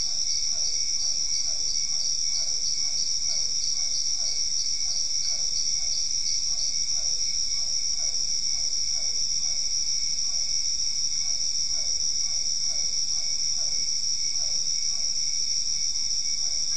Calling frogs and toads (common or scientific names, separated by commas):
Dendropsophus cruzi, Physalaemus cuvieri